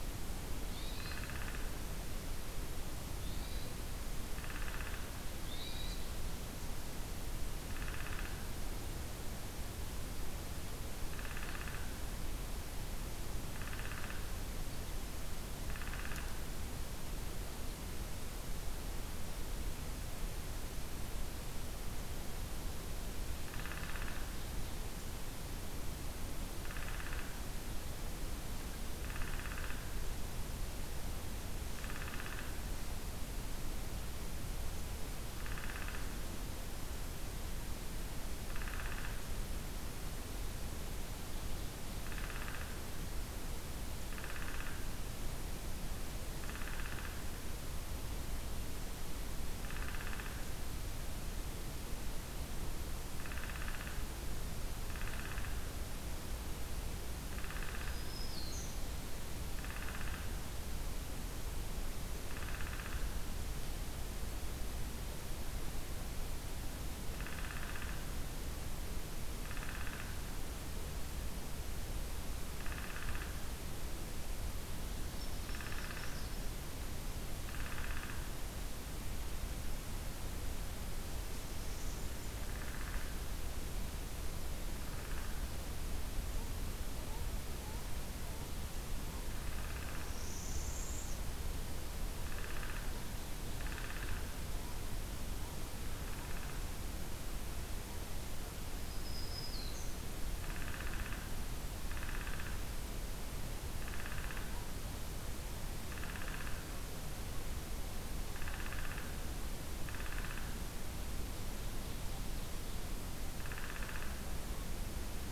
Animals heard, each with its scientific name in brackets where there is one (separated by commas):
Black-throated Green Warbler (Setophaga virens), Downy Woodpecker (Dryobates pubescens), Hermit Thrush (Catharus guttatus), Ovenbird (Seiurus aurocapilla), Northern Parula (Setophaga americana)